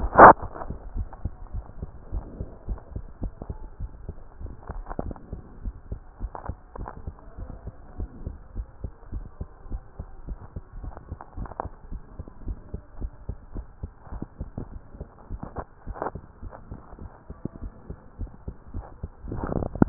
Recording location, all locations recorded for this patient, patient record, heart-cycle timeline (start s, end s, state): tricuspid valve (TV)
aortic valve (AV)+pulmonary valve (PV)+tricuspid valve (TV)+mitral valve (MV)
#Age: Child
#Sex: Male
#Height: 113.0 cm
#Weight: 19.4 kg
#Pregnancy status: False
#Murmur: Absent
#Murmur locations: nan
#Most audible location: nan
#Systolic murmur timing: nan
#Systolic murmur shape: nan
#Systolic murmur grading: nan
#Systolic murmur pitch: nan
#Systolic murmur quality: nan
#Diastolic murmur timing: nan
#Diastolic murmur shape: nan
#Diastolic murmur grading: nan
#Diastolic murmur pitch: nan
#Diastolic murmur quality: nan
#Outcome: Normal
#Campaign: 2015 screening campaign
0.00	1.35	unannotated
1.35	1.52	diastole
1.52	1.66	S1
1.66	1.78	systole
1.78	1.90	S2
1.90	2.08	diastole
2.08	2.24	S1
2.24	2.38	systole
2.38	2.48	S2
2.48	2.67	diastole
2.67	2.82	S1
2.82	2.94	systole
2.94	3.06	S2
3.06	3.22	diastole
3.22	3.32	S1
3.32	3.46	systole
3.46	3.58	S2
3.58	3.78	diastole
3.78	3.92	S1
3.92	4.04	systole
4.04	4.16	S2
4.16	4.38	diastole
4.38	4.54	S1
4.54	4.68	systole
4.68	4.84	S2
4.84	5.00	diastole
5.00	5.16	S1
5.16	5.30	systole
5.30	5.40	S2
5.40	5.60	diastole
5.60	5.74	S1
5.74	5.88	systole
5.88	6.00	S2
6.00	6.19	diastole
6.19	6.32	S1
6.32	6.46	systole
6.46	6.56	S2
6.56	6.76	diastole
6.76	6.88	S1
6.88	7.04	systole
7.04	7.14	S2
7.14	7.36	diastole
7.36	7.50	S1
7.50	7.63	systole
7.63	7.74	S2
7.74	7.96	diastole
7.96	8.10	S1
8.10	8.23	systole
8.23	8.38	S2
8.38	8.54	diastole
8.54	8.70	S1
8.70	8.80	systole
8.80	8.92	S2
8.92	9.10	diastole
9.10	9.26	S1
9.26	9.38	systole
9.38	9.48	S2
9.48	9.68	diastole
9.68	9.82	S1
9.82	9.96	systole
9.96	10.08	S2
10.08	10.26	diastole
10.26	10.38	S1
10.38	10.53	systole
10.53	10.64	S2
10.64	10.82	diastole
10.82	10.94	S1
10.94	11.10	systole
11.10	11.20	S2
11.20	11.38	diastole
11.38	11.52	S1
11.52	11.62	systole
11.62	11.74	S2
11.74	11.90	diastole
11.90	12.02	S1
12.02	12.16	systole
12.16	12.28	S2
12.28	12.46	diastole
12.46	12.58	S1
12.58	12.72	systole
12.72	12.82	S2
12.82	12.98	diastole
12.98	13.16	S1
13.16	13.26	systole
13.26	13.38	S2
13.38	13.53	diastole
13.53	13.66	S1
13.66	13.81	systole
13.81	13.92	S2
13.92	14.10	diastole
14.10	14.21	S1
14.21	14.37	systole
14.37	14.49	S2
14.49	14.70	diastole
14.70	14.84	S1
14.84	14.98	systole
14.98	15.10	S2
15.10	15.29	diastole
15.29	15.42	S1
15.42	15.56	systole
15.56	15.66	S2
15.66	15.85	diastole
15.85	15.96	S1
15.96	16.12	systole
16.12	16.22	S2
16.22	16.41	diastole
16.41	16.53	S1
16.53	16.70	systole
16.70	16.80	S2
16.80	16.99	diastole
16.99	17.12	S1
17.12	17.27	systole
17.27	17.38	S2
17.38	17.60	diastole
17.60	17.72	S1
17.72	17.86	systole
17.86	17.96	S2
17.96	18.18	diastole
18.18	18.32	S1
18.32	18.45	systole
18.45	18.54	S2
18.54	18.72	diastole
18.72	18.86	S1
18.86	19.02	systole
19.02	19.12	S2
19.12	19.26	diastole
19.26	19.89	unannotated